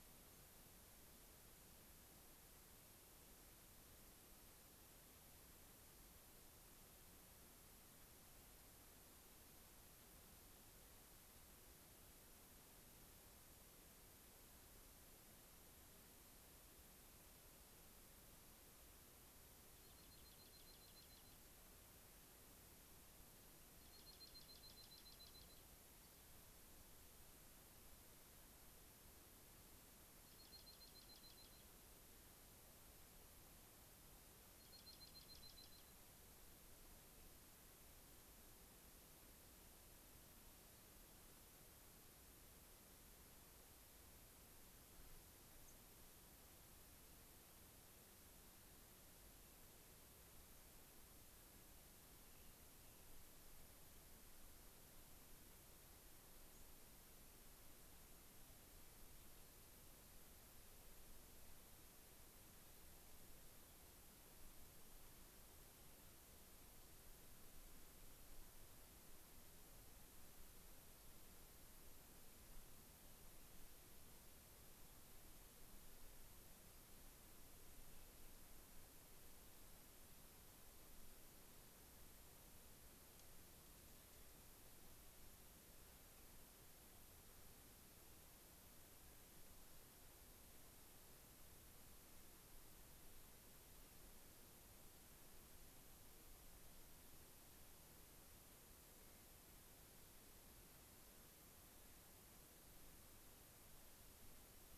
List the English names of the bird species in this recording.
Fox Sparrow, Dark-eyed Junco